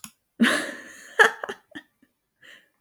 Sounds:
Laughter